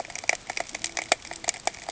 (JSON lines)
{"label": "ambient", "recorder": "HydroMoth"}